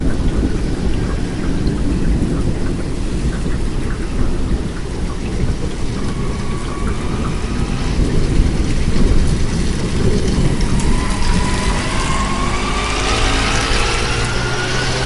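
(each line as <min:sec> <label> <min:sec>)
0:00.0 Air rumbles loudly. 0:15.1
0:00.0 Water is falling continuously. 0:15.1
0:05.8 Tires screech as they get nearer. 0:07.8
0:11.1 A motorbike engine gradually getting louder. 0:15.1
0:11.1 Tires screech as they get closer. 0:15.1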